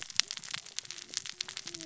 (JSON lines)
{"label": "biophony, cascading saw", "recorder": "SoundTrap 600 or HydroMoth"}